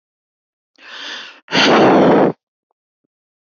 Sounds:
Sigh